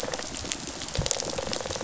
{"label": "biophony, rattle response", "recorder": "SoundTrap 500"}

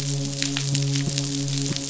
{"label": "biophony, midshipman", "recorder": "SoundTrap 500"}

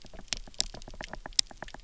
{"label": "biophony, knock", "recorder": "SoundTrap 300"}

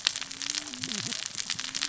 {"label": "biophony, cascading saw", "recorder": "SoundTrap 600 or HydroMoth"}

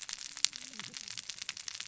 {"label": "biophony, cascading saw", "recorder": "SoundTrap 600 or HydroMoth"}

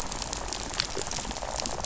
{"label": "biophony, rattle", "recorder": "SoundTrap 500"}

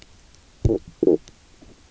{"label": "biophony, stridulation", "recorder": "SoundTrap 300"}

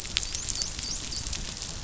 {"label": "biophony, dolphin", "recorder": "SoundTrap 500"}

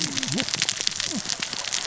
{"label": "biophony, cascading saw", "recorder": "SoundTrap 600 or HydroMoth"}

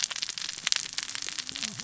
{"label": "biophony, cascading saw", "recorder": "SoundTrap 600 or HydroMoth"}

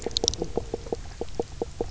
{"label": "biophony, knock croak", "recorder": "SoundTrap 300"}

